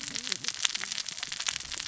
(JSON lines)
{"label": "biophony, cascading saw", "recorder": "SoundTrap 600 or HydroMoth"}